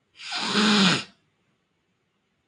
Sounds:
Sniff